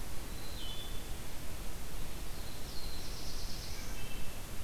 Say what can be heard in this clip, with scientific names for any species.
Hylocichla mustelina, Setophaga caerulescens